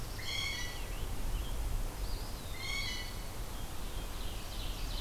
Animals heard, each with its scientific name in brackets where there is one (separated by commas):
Blue Jay (Cyanocitta cristata), Ovenbird (Seiurus aurocapilla), Black-throated Blue Warbler (Setophaga caerulescens), Scarlet Tanager (Piranga olivacea), Eastern Wood-Pewee (Contopus virens)